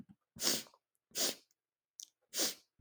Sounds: Sniff